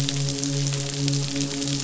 {"label": "biophony, midshipman", "recorder": "SoundTrap 500"}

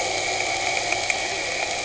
{"label": "anthrophony, boat engine", "recorder": "HydroMoth"}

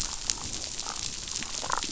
{"label": "biophony, damselfish", "recorder": "SoundTrap 500"}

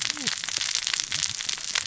{"label": "biophony, cascading saw", "recorder": "SoundTrap 600 or HydroMoth"}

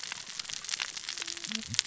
{"label": "biophony, cascading saw", "recorder": "SoundTrap 600 or HydroMoth"}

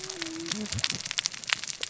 {"label": "biophony, cascading saw", "recorder": "SoundTrap 600 or HydroMoth"}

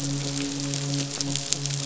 {"label": "biophony, midshipman", "recorder": "SoundTrap 500"}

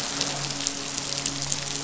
{"label": "biophony, midshipman", "recorder": "SoundTrap 500"}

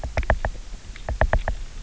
{"label": "biophony, knock", "recorder": "SoundTrap 300"}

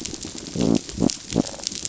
{"label": "biophony", "recorder": "SoundTrap 500"}
{"label": "biophony, rattle response", "recorder": "SoundTrap 500"}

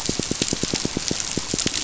{"label": "biophony, pulse", "recorder": "SoundTrap 500"}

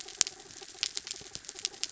{"label": "anthrophony, mechanical", "recorder": "SoundTrap 300"}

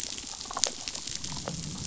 {"label": "biophony, damselfish", "recorder": "SoundTrap 500"}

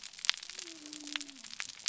{"label": "biophony", "recorder": "SoundTrap 300"}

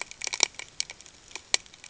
{"label": "ambient", "recorder": "HydroMoth"}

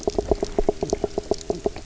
{"label": "biophony, knock", "recorder": "SoundTrap 300"}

